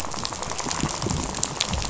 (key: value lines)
label: biophony, rattle
recorder: SoundTrap 500